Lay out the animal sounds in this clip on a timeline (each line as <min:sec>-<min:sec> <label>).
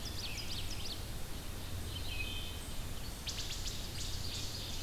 0:00.0-0:01.2 Ovenbird (Seiurus aurocapilla)
0:00.0-0:04.8 Red-eyed Vireo (Vireo olivaceus)
0:01.7-0:02.8 Wood Thrush (Hylocichla mustelina)
0:03.1-0:04.8 Ovenbird (Seiurus aurocapilla)
0:03.1-0:03.7 Wood Thrush (Hylocichla mustelina)